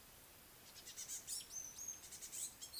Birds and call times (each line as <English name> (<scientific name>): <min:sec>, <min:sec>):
African Gray Flycatcher (Bradornis microrhynchus): 0:01.7